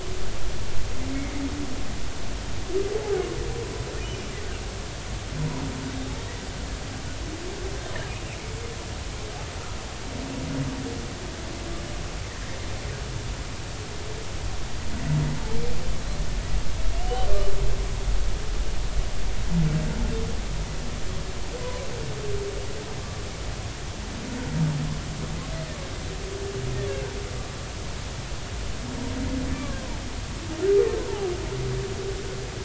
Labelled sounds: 17.0	17.3	humpback whale, 2.9 to 3.2 kHz
29.5	30.0	humpback whale, 0.83 to 1.2 kHz

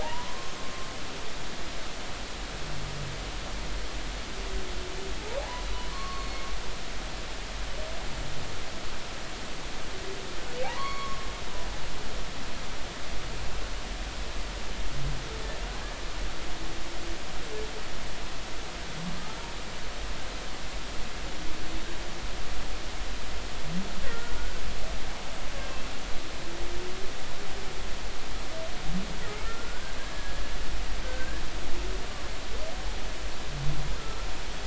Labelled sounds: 0.0	0.6	humpback whale, 0.80 to 6.4 kHz
5.4	6.5	humpback whale, 0.80 to 4.4 kHz
10.6	11.3	humpback whale, 0.80 to 4.5 kHz
19.2	19.4	humpback whale, 1.2 to 1.4 kHz
24.1	24.4	humpback whale, 1.3 to 1.5 kHz
29.4	30.4	humpback whale, 1.3 to 1.7 kHz
31.0	31.4	humpback whale, 1.5 to 1.8 kHz
34.0	34.3	humpback whale, 1.3 to 1.4 kHz

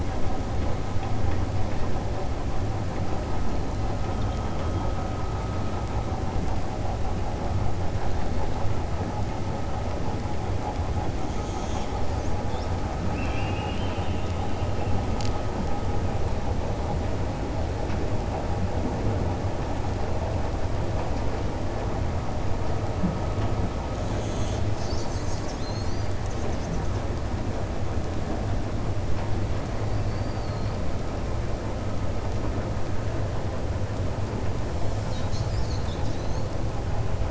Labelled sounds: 13.0	14.3	killer whale, 1.5 to 4.0 kHz

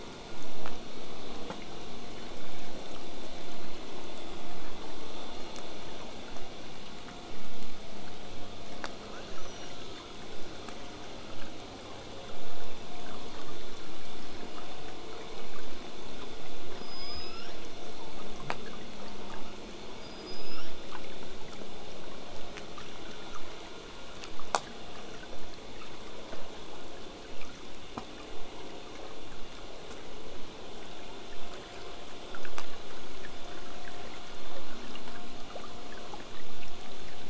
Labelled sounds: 9.1	10.1	killer whale, southern resident, L pod, call S02iii, 1.1 to 8.0 kHz
16.7	17.6	killer whale, southern resident, L pod, call S19, 0.86 to 8.0 kHz
20.0	20.7	killer whale, southern resident, L pod, call S19, 0.95 to 8.0 kHz

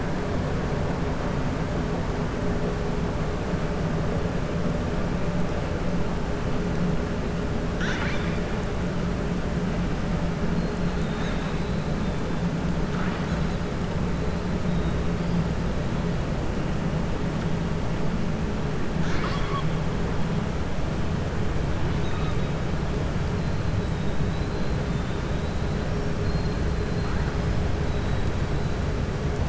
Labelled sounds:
10.9	11.8	killer whale, southern resident, 1.4 to 4.3 kHz
18.9	19.7	killer whale, southern resident, 1.0 to 6.8 kHz

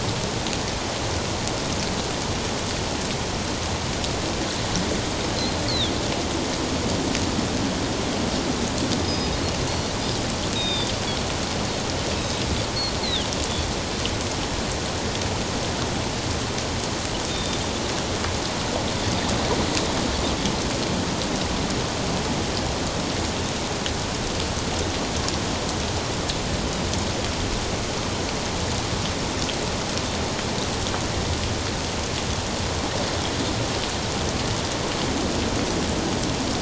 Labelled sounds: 5.7	5.9	Pacific white-sided dolphin, 3.2 to 4.6 kHz
9.0	9.9	Pacific white-sided dolphin, 4.2 to 5.1 kHz
10.5	10.9	Pacific white-sided dolphin, 2.4 to 5.0 kHz
12.2	13.3	Pacific white-sided dolphin, 2.8 to 4.4 kHz
17.3	17.6	Pacific white-sided dolphin, 3.5 to 3.7 kHz

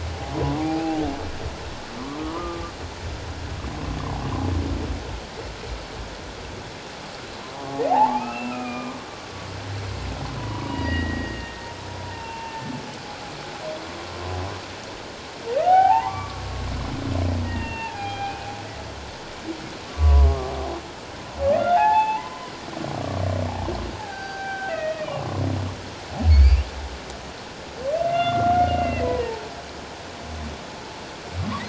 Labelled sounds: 0.5	1.0	humpback whale, 0.78 to 2.8 kHz
2.0	2.7	humpback whale, 0.91 to 1.3 kHz
7.5	9.0	humpback whale, 0.78 to 2.8 kHz
10.4	11.6	humpback whale, 0.91 to 2.0 kHz
12.0	12.7	humpback whale, 0.84 to 2.8 kHz
15.6	16.4	humpback whale, 0.78 to 3.2 kHz
17.4	18.5	humpback whale, 0.78 to 3.2 kHz
19.9	20.5	humpback whale, 0.94 to 1.2 kHz
21.4	22.5	humpback whale, 0.78 to 3.5 kHz
24.0	25.3	humpback whale, 0.78 to 4.8 kHz
26.3	26.7	humpback whale, 2.1 to 4.8 kHz
28.1	29.5	humpback whale, 0.81 to 3.6 kHz

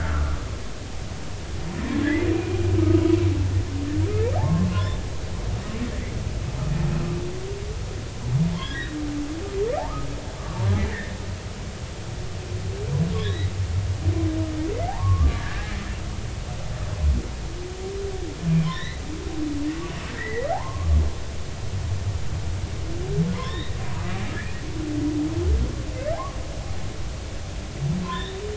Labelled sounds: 2.0	2.6	humpback whale, 1.6 to 2.5 kHz
4.3	5.0	humpback whale, 0.80 to 1.2 kHz
8.5	9.0	humpback whale, 1.6 to 3.9 kHz
10.9	11.2	humpback whale, 1.6 to 2.2 kHz
13.1	13.5	humpback whale, 1.6 to 4.0 kHz
14.9	15.4	humpback whale, 0.80 to 1.2 kHz
18.7	19.0	humpback whale, 1.7 to 4.2 kHz
20.2	21.0	humpback whale, 0.80 to 2.1 kHz
23.3	23.8	humpback whale, 0.93 to 4.0 kHz
28.0	28.4	humpback whale, 0.90 to 3.8 kHz

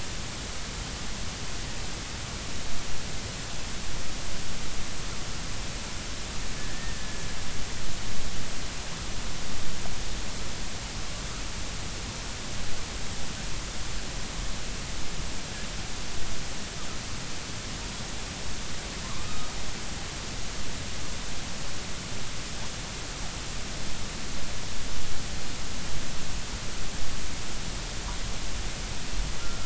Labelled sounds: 6.6	7.2	killer whale, 1.6 to 1.9 kHz
19.0	19.5	killer whale, northern resident, G clan, call N23i, 0.99 to 1.4 kHz
29.4	29.6	killer whale, 1.2 to 1.4 kHz

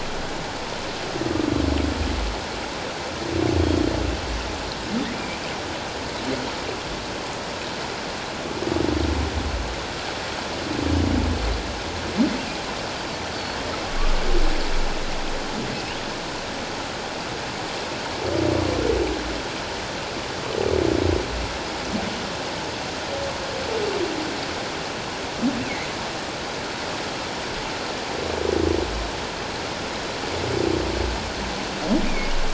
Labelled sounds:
5.1	5.4	humpback whale, 2.2 to 2.5 kHz
32.1	32.3	humpback whale, 2.1 to 2.5 kHz

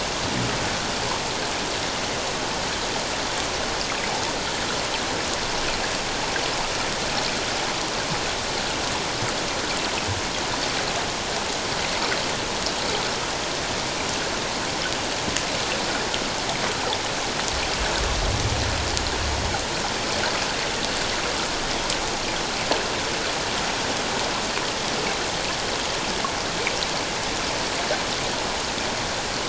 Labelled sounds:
4.1	4.3	water noise, 0.78 to 0.97 kHz

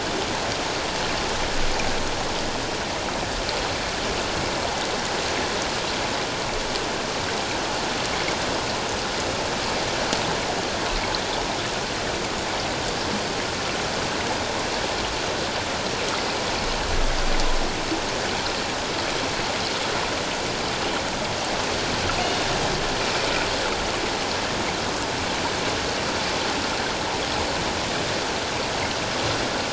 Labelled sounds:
22.2	22.5	killer whale, northern resident, G clan, call N24ii, 3.6 to 3.7 kHz

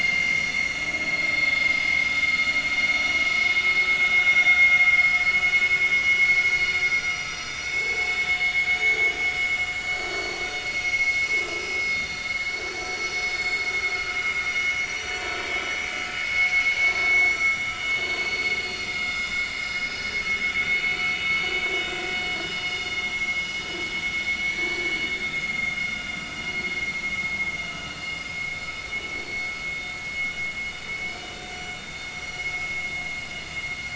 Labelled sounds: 2.8	3.6	vessel noise, 5.0 to 5.8 kHz
5.0	5.6	vessel noise, 2.9 to 5.1 kHz
7.5	8.2	vessel noise, 2.2 to 7.4 kHz
8.7	9.1	vessel noise, 6.5 to 6.8 kHz
9.9	11.4	vessel noise, 2.1 to 7.3 kHz
11.9	12.2	vessel noise, 3.55 to 3.65 kHz
13.0	14.4	vessel noise, 4.9 to 7.4 kHz
16.8	17.3	vessel noise, 2.1 to 4.6 kHz
18.0	20.0	vessel noise, 1.4 to 7.4 kHz
20.8	21.0	vessel noise, 2.2 to 2.4 kHz
22.6	23.3	vessel noise, 2.8 to 5.8 kHz
24.4	24.9	vessel noise, 2.2 to 2.3 kHz
25.3	26.2	vessel noise, 2.0 to 2.9 kHz
29.1	29.5	vessel noise, 4.3 to 4.4 kHz
32.2	32.5	vessel noise, 5.7 to 5.9 kHz

